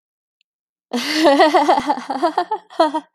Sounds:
Laughter